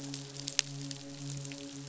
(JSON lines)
{"label": "biophony, midshipman", "recorder": "SoundTrap 500"}